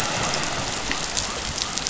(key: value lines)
label: biophony
recorder: SoundTrap 500